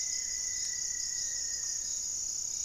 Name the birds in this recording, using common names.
Goeldi's Antbird, Rufous-fronted Antthrush, Buff-breasted Wren, Gray-fronted Dove